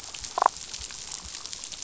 {"label": "biophony, damselfish", "recorder": "SoundTrap 500"}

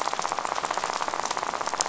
{"label": "biophony, rattle", "recorder": "SoundTrap 500"}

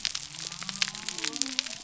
{"label": "biophony", "recorder": "SoundTrap 300"}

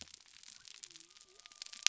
{"label": "biophony", "recorder": "SoundTrap 300"}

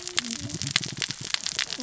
{"label": "biophony, cascading saw", "recorder": "SoundTrap 600 or HydroMoth"}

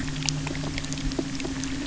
{"label": "anthrophony, boat engine", "recorder": "SoundTrap 300"}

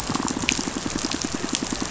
{"label": "biophony, pulse", "recorder": "SoundTrap 500"}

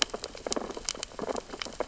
{"label": "biophony, sea urchins (Echinidae)", "recorder": "SoundTrap 600 or HydroMoth"}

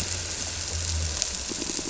{"label": "anthrophony, boat engine", "recorder": "SoundTrap 300"}
{"label": "biophony", "recorder": "SoundTrap 300"}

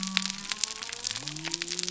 {"label": "biophony", "recorder": "SoundTrap 300"}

